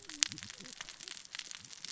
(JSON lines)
{"label": "biophony, cascading saw", "recorder": "SoundTrap 600 or HydroMoth"}